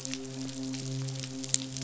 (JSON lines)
{"label": "biophony, midshipman", "recorder": "SoundTrap 500"}